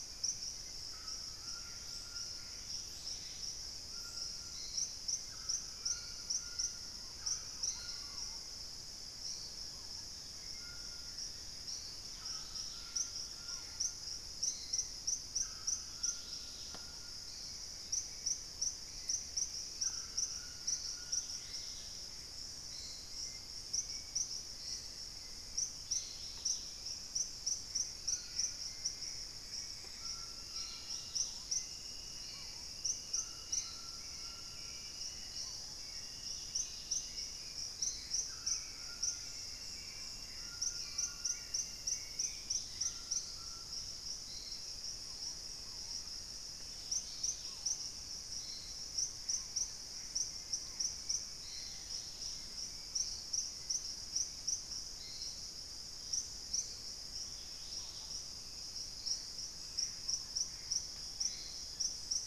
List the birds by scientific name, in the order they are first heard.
Pachysylvia hypoxantha, Ramphastos tucanus, Turdus hauxwelli, Cercomacra cinerascens, Querula purpurata, Platyrinchus platyrhynchos, Lipaugus vociferans, Formicarius analis